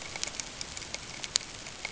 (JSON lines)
{"label": "ambient", "recorder": "HydroMoth"}